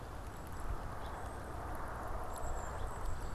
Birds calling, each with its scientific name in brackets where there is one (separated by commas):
Golden-crowned Kinglet (Regulus satrapa), Song Sparrow (Melospiza melodia)